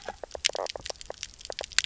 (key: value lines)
label: biophony, knock croak
recorder: SoundTrap 300